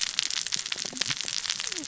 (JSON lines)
{"label": "biophony, cascading saw", "recorder": "SoundTrap 600 or HydroMoth"}